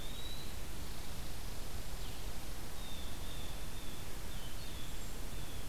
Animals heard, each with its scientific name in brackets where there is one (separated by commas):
Eastern Wood-Pewee (Contopus virens), Blue Jay (Cyanocitta cristata), Blue-headed Vireo (Vireo solitarius)